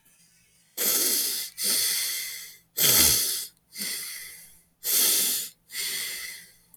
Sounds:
Sniff